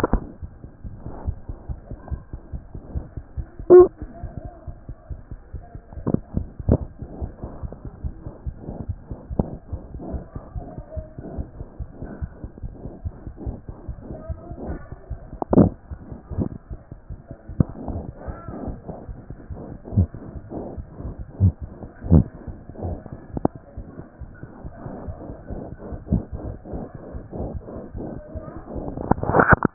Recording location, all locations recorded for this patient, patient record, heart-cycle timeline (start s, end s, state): aortic valve (AV)
aortic valve (AV)+mitral valve (MV)
#Age: Infant
#Sex: Male
#Height: 71.0 cm
#Weight: 9.7 kg
#Pregnancy status: False
#Murmur: Absent
#Murmur locations: nan
#Most audible location: nan
#Systolic murmur timing: nan
#Systolic murmur shape: nan
#Systolic murmur grading: nan
#Systolic murmur pitch: nan
#Systolic murmur quality: nan
#Diastolic murmur timing: nan
#Diastolic murmur shape: nan
#Diastolic murmur grading: nan
#Diastolic murmur pitch: nan
#Diastolic murmur quality: nan
#Outcome: Normal
#Campaign: 2014 screening campaign
0.00	1.20	unannotated
1.20	1.26	diastole
1.26	1.36	S1
1.36	1.48	systole
1.48	1.56	S2
1.56	1.68	diastole
1.68	1.78	S1
1.78	1.88	systole
1.88	1.96	S2
1.96	2.10	diastole
2.10	2.22	S1
2.22	2.32	systole
2.32	2.40	S2
2.40	2.54	diastole
2.54	2.62	S1
2.62	2.72	systole
2.72	2.80	S2
2.80	2.94	diastole
2.94	3.04	S1
3.04	3.16	systole
3.16	3.24	S2
3.24	3.38	diastole
3.38	29.74	unannotated